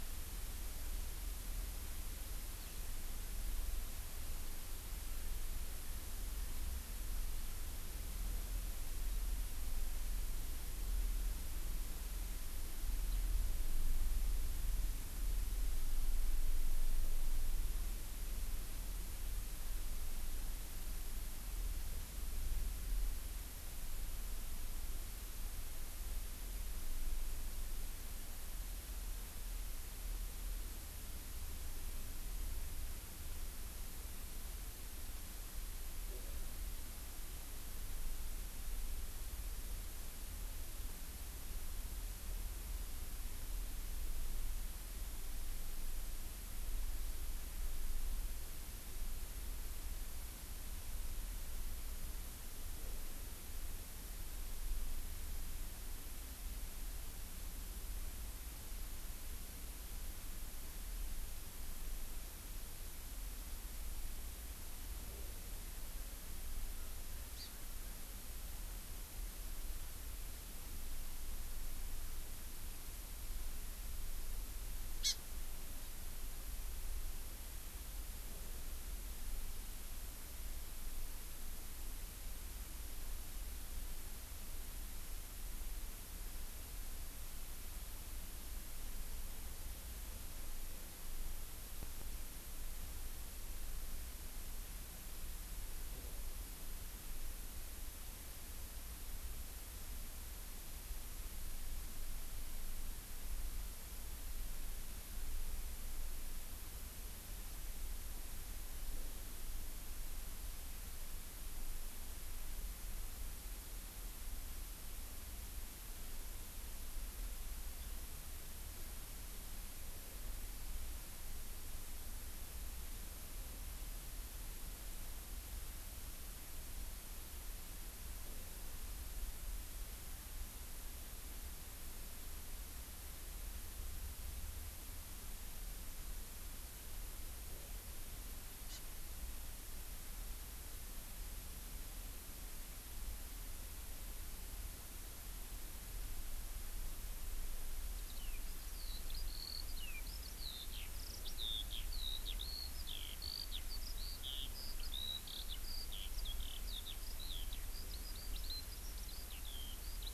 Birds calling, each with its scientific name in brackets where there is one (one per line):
Eurasian Skylark (Alauda arvensis)
Hawaii Amakihi (Chlorodrepanis virens)